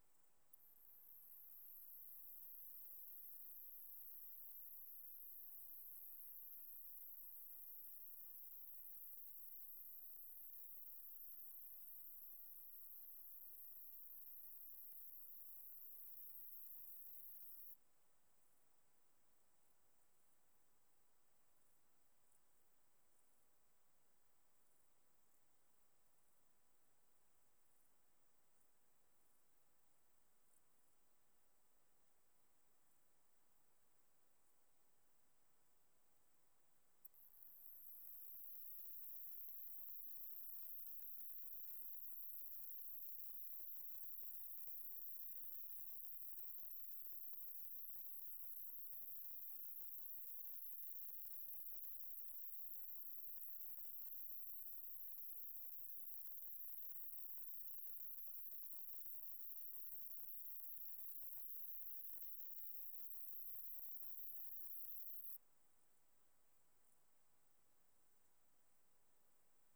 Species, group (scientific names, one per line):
Pycnogaster jugicola
Orthoptera